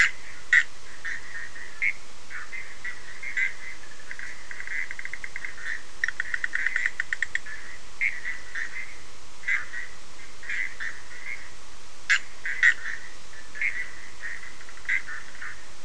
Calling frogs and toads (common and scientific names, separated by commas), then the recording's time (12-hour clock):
Bischoff's tree frog (Boana bischoffi)
3:30am